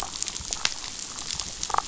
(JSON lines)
{"label": "biophony", "recorder": "SoundTrap 500"}